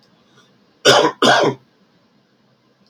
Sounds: Cough